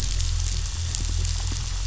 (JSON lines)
{"label": "anthrophony, boat engine", "recorder": "SoundTrap 500"}